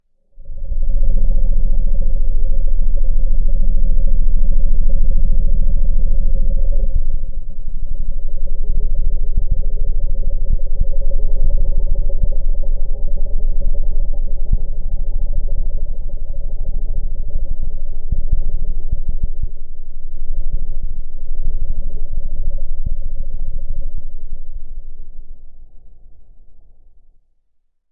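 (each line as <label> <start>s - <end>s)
A dull thumping sound fades away. 0.3s - 27.9s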